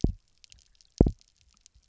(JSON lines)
{"label": "biophony, double pulse", "recorder": "SoundTrap 300"}